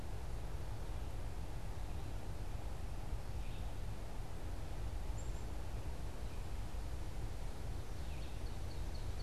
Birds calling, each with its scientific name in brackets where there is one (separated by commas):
Black-capped Chickadee (Poecile atricapillus), Ovenbird (Seiurus aurocapilla), Red-eyed Vireo (Vireo olivaceus)